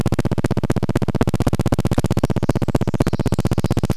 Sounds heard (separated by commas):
Pacific Wren song, recorder noise